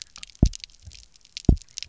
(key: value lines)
label: biophony, double pulse
recorder: SoundTrap 300